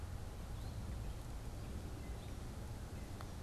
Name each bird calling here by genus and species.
Dumetella carolinensis